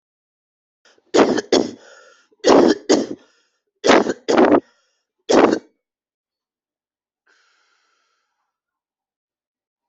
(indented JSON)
{
  "expert_labels": [
    {
      "quality": "ok",
      "cough_type": "wet",
      "dyspnea": false,
      "wheezing": false,
      "stridor": false,
      "choking": false,
      "congestion": false,
      "nothing": true,
      "diagnosis": "lower respiratory tract infection",
      "severity": "severe"
    }
  ],
  "age": 27,
  "gender": "male",
  "respiratory_condition": false,
  "fever_muscle_pain": false,
  "status": "symptomatic"
}